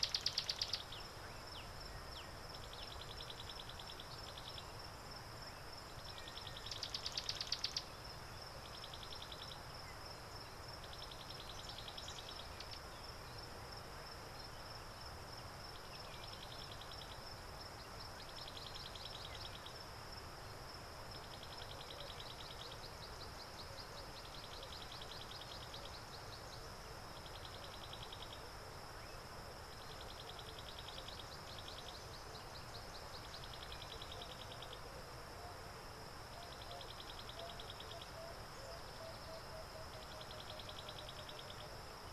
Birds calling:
Black-backed Puffback (Dryoscopus cubla), African Bare-eyed Thrush (Turdus tephronotus)

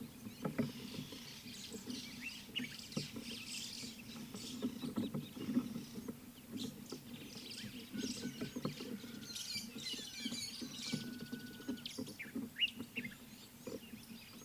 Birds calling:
Common Bulbul (Pycnonotus barbatus), White-headed Buffalo-Weaver (Dinemellia dinemelli)

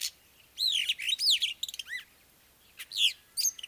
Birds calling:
Superb Starling (Lamprotornis superbus)

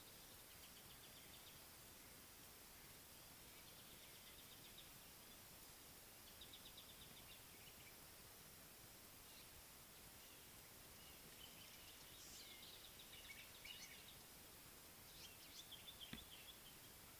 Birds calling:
Variable Sunbird (Cinnyris venustus)

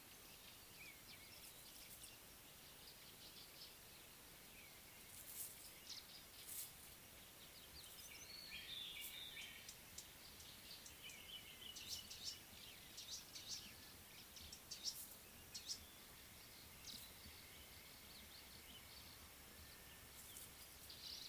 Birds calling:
White-browed Robin-Chat (Cossypha heuglini), Variable Sunbird (Cinnyris venustus)

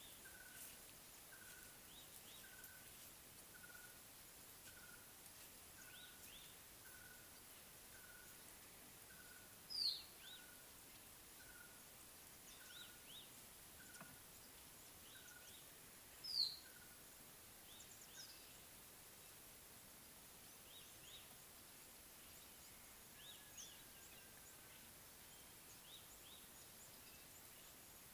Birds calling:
Red-backed Scrub-Robin (Cercotrichas leucophrys), Mocking Cliff-Chat (Thamnolaea cinnamomeiventris)

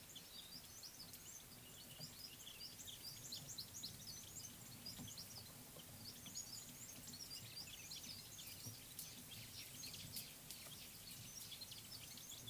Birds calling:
Mariqua Sunbird (Cinnyris mariquensis)

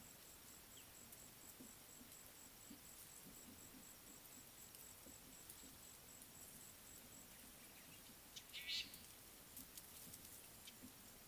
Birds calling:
Fork-tailed Drongo (Dicrurus adsimilis)

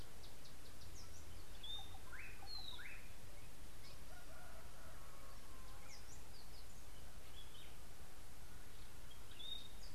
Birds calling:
Slate-colored Boubou (Laniarius funebris), White-browed Robin-Chat (Cossypha heuglini)

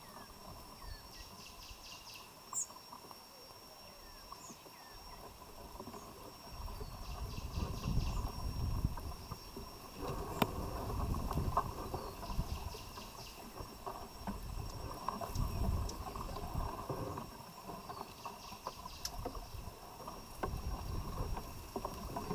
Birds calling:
White-eyed Slaty-Flycatcher (Melaenornis fischeri)

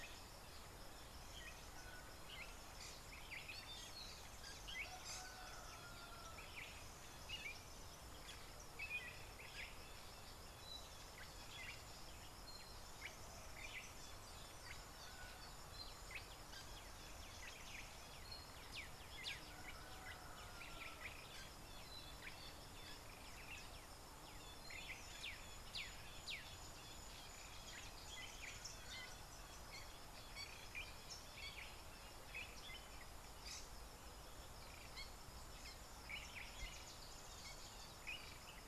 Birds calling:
Black-backed Puffback (Dryoscopus cubla)

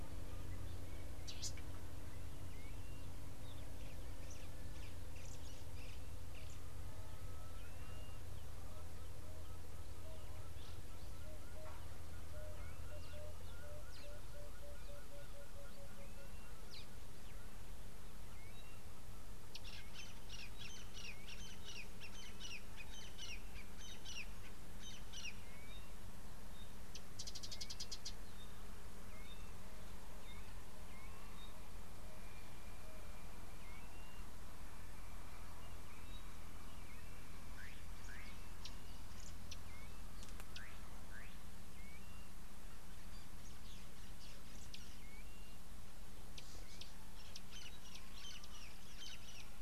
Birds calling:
Pygmy Batis (Batis perkeo), Blue-naped Mousebird (Urocolius macrourus), Emerald-spotted Wood-Dove (Turtur chalcospilos), Crested Francolin (Ortygornis sephaena)

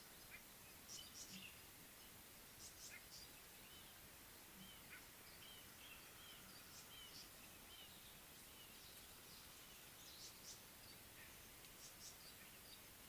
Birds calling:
Red-fronted Barbet (Tricholaema diademata), Tawny-flanked Prinia (Prinia subflava)

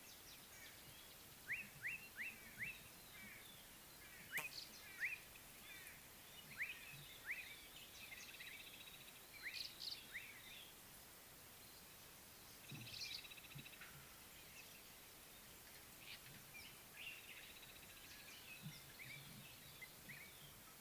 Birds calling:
African Thrush (Turdus pelios), Slate-colored Boubou (Laniarius funebris), Kenya Rufous Sparrow (Passer rufocinctus)

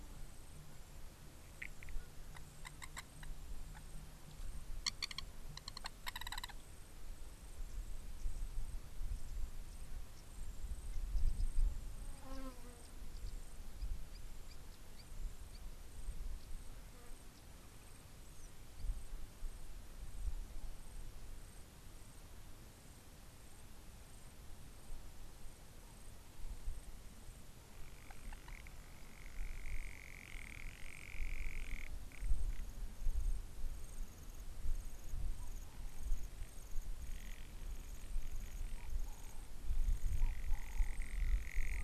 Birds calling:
Long-toed Lapwing (Vanellus crassirostris), Garganey (Spatula querquedula)

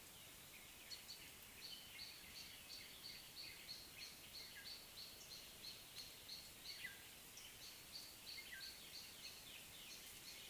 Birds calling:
Gray Apalis (Apalis cinerea), Black-tailed Oriole (Oriolus percivali)

